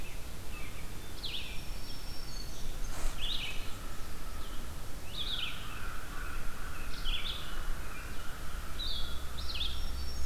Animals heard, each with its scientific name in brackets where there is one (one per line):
Red-eyed Vireo (Vireo olivaceus)
Black-throated Green Warbler (Setophaga virens)
Blue-headed Vireo (Vireo solitarius)
American Crow (Corvus brachyrhynchos)
American Robin (Turdus migratorius)